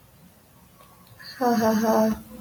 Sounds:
Laughter